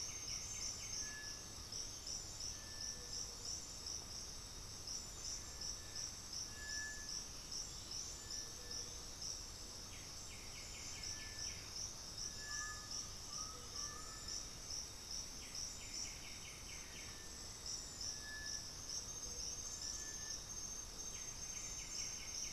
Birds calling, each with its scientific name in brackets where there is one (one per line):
Cinereous Tinamou (Crypturellus cinereus)
Black-throated Antbird (Myrmophylax atrothorax)
Black-faced Antthrush (Formicarius analis)
White-winged Becard (Pachyramphus polychopterus)
Undulated Tinamou (Crypturellus undulatus)